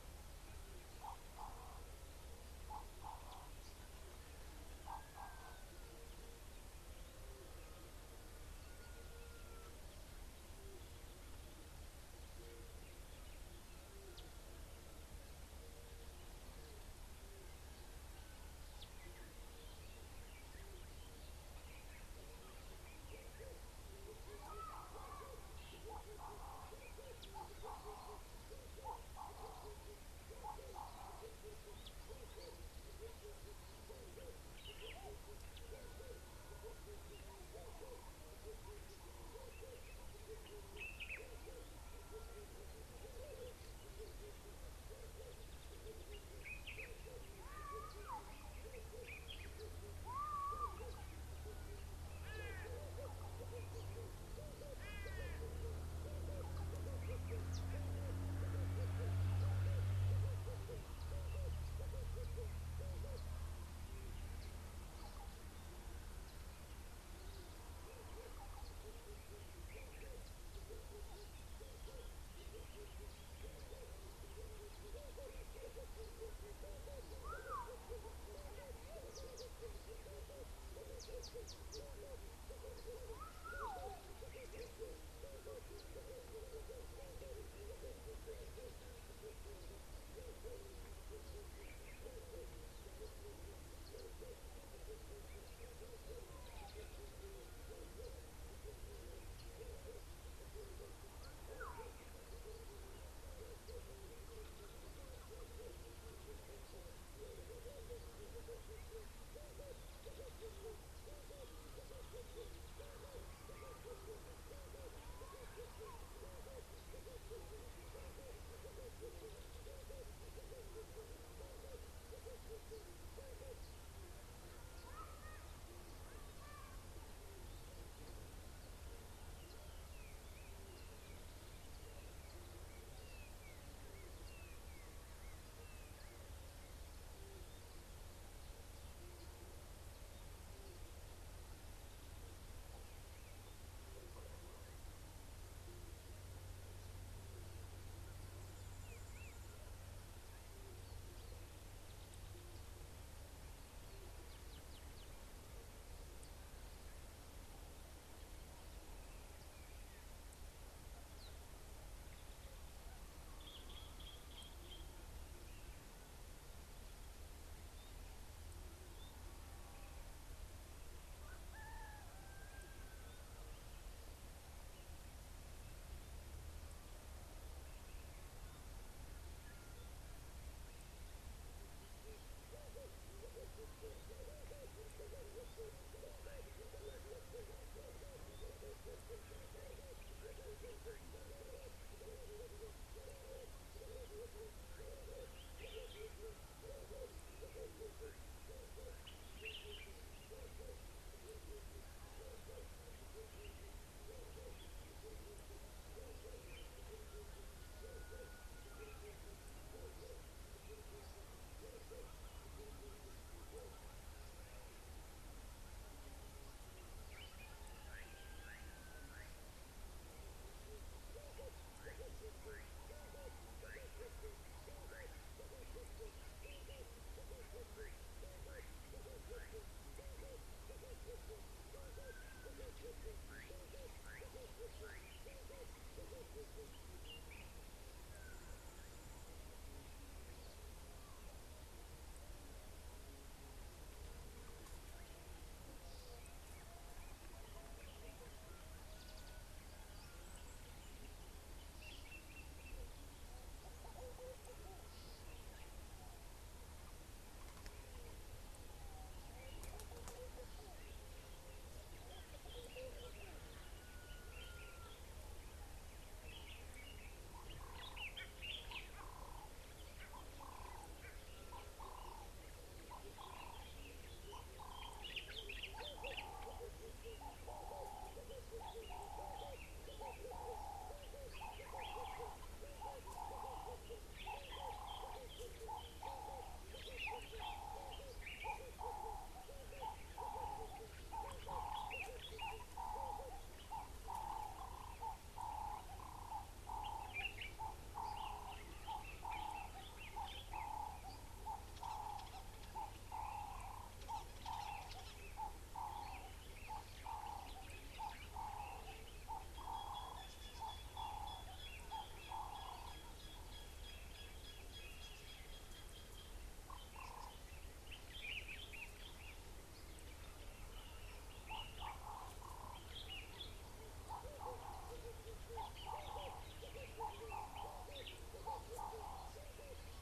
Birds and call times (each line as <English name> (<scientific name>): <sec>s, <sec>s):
Red-eyed Dove (Streptopelia semitorquata): 193.2s, 225.9s, 326.7s
Common Bulbul (Pycnonotus barbatus): 199.6s, 275.4s, 287.1s, 297.1s, 318.4s
Slate-colored Boubou (Laniarius funebris): 218.5s, 228.5s
Ring-necked Dove (Streptopelia capicola): 271.9s, 290.5s, 326.1s
Nubian Woodpecker (Campethera nubica): 312.6s